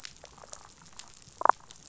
{"label": "biophony, damselfish", "recorder": "SoundTrap 500"}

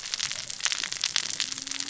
{"label": "biophony, cascading saw", "recorder": "SoundTrap 600 or HydroMoth"}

